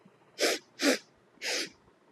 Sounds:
Sniff